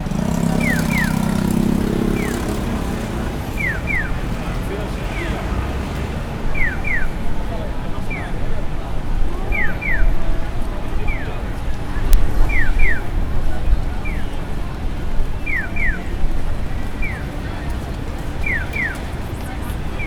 Can only one person be heard speaking?
no